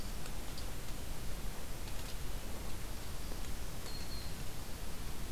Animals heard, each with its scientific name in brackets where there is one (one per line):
Black-throated Green Warbler (Setophaga virens)